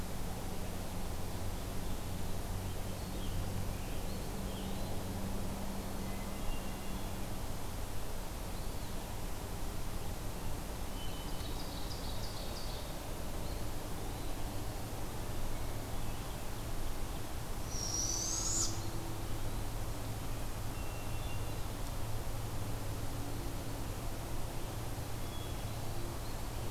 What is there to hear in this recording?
Scarlet Tanager, Eastern Wood-Pewee, Hermit Thrush, Ovenbird, Barred Owl